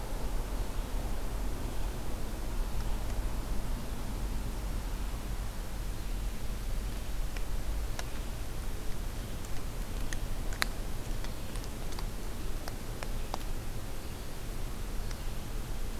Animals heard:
forest ambience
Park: Acadia National Park